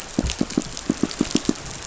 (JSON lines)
{"label": "biophony, pulse", "recorder": "SoundTrap 500"}